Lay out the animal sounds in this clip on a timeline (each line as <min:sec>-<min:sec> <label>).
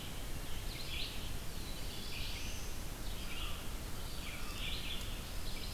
0:00.0-0:05.7 Red-eyed Vireo (Vireo olivaceus)
0:01.3-0:02.8 Black-throated Blue Warbler (Setophaga caerulescens)
0:03.2-0:04.6 American Crow (Corvus brachyrhynchos)
0:03.8-0:05.1 Eastern Wood-Pewee (Contopus virens)
0:05.2-0:05.7 Pine Warbler (Setophaga pinus)